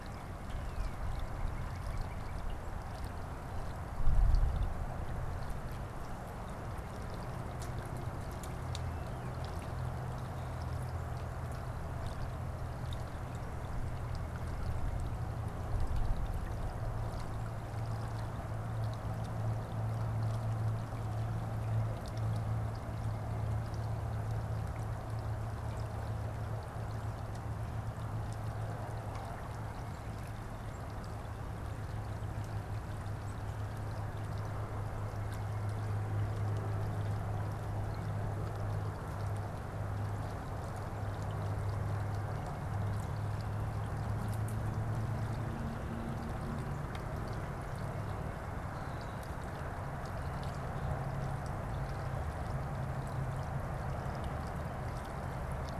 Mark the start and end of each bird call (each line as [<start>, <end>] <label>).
[0.34, 2.44] Northern Cardinal (Cardinalis cardinalis)